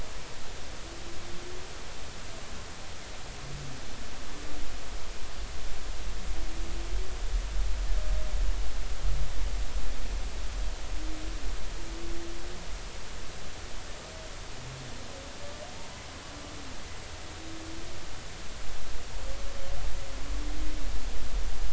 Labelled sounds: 15.8	16.0	humpback whale, 0.86 to 1.0 kHz

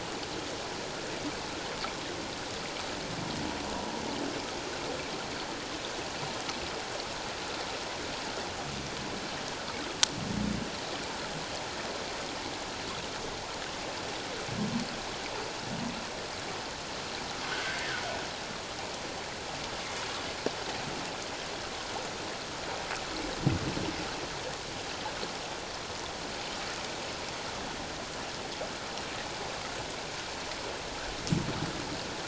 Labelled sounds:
17.4	17.8	humpback whale, 1.3 to 1.7 kHz

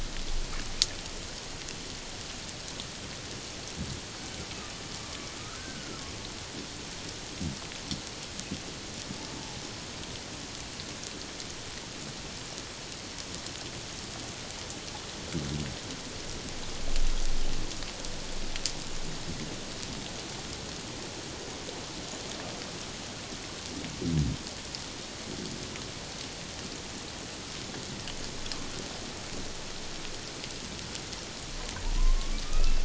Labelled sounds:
5.4	6.0	humpback whale, 1.2 to 1.6 kHz
31.9	32.8	humpback whale, 0.91 to 2.7 kHz

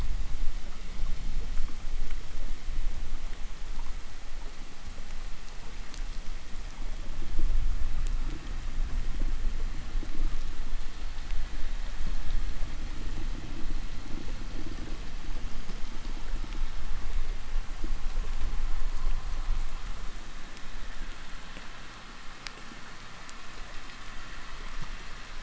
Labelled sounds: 17.0	25.3	vessel noise, 0.62 to 5.1 kHz

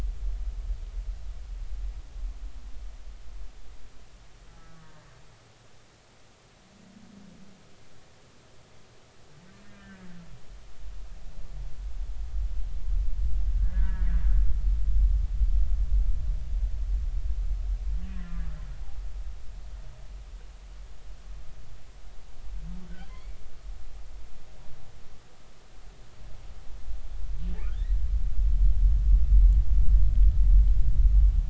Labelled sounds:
5.7	6.0	humpback whale, 1.4 to 1.6 kHz
9.6	10.1	humpback whale, 1.5 to 1.8 kHz
13.6	14.2	humpback whale, 1.4 to 2.0 kHz
18.0	18.5	humpback whale, 1.1 to 2.0 kHz
22.9	23.4	humpback whale, 1.4 to 3.5 kHz
27.6	28.0	humpback whale, 1.2 to 2.0 kHz

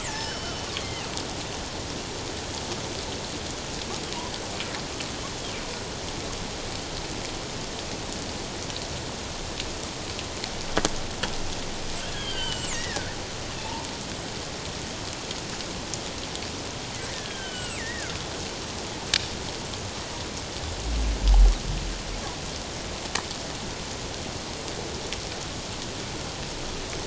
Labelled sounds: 12.1	13.1	killer whale, northern resident, G clan, 1.4 to 8.0 kHz
13.6	13.9	killer whale, northern resident, G clan, 0.81 to 1.0 kHz
17.1	18.2	killer whale, northern resident, G clan, 1.3 to 8.0 kHz

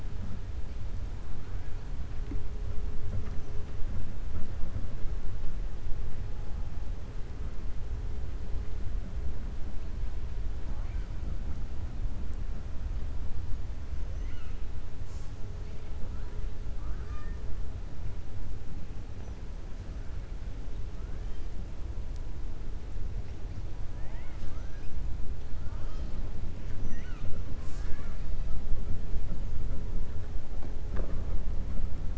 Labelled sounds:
14.1	14.6	killer whale, 1.3 to 3.2 kHz
23.9	24.9	killer whale, 0.71 to 7.3 kHz

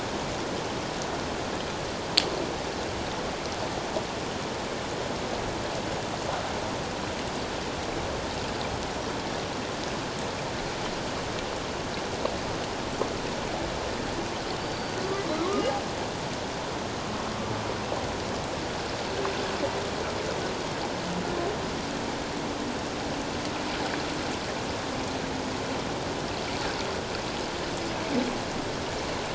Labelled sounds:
14.6	15.6	Pacific white-sided dolphin, 3.9 to 4.7 kHz

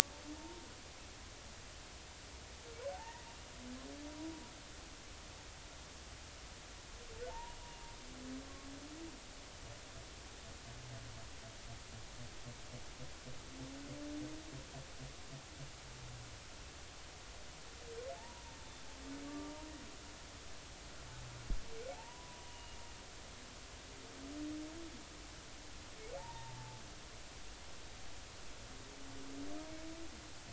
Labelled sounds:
2.9	4.3	humpback whale, 0.80 to 2.0 kHz
7.3	7.6	humpback whale, 0.83 to 1.0 kHz
18.2	18.4	humpback whale, 0.80 to 0.99 kHz
19.2	19.5	humpback whale, 1.1 to 1.2 kHz
21.9	22.8	humpback whale, 0.80 to 2.9 kHz
26.2	26.8	humpback whale, 0.80 to 0.99 kHz

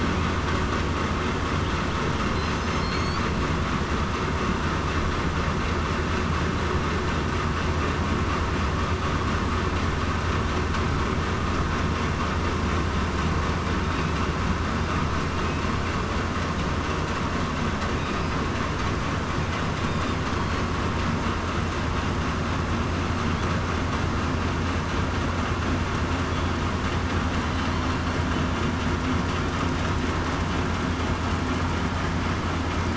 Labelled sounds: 2.8	3.2	killer whale, southern resident, 4.2 to 4.7 kHz

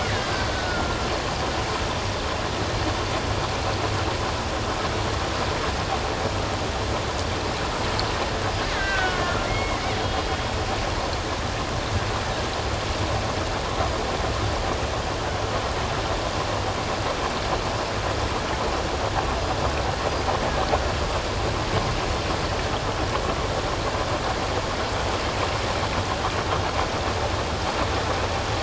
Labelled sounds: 0.1	1.1	killer whale, Bigg's (transient), 1.3 to 4.8 kHz
8.7	9.8	killer whale, Bigg's (transient), 1.3 to 2.2 kHz

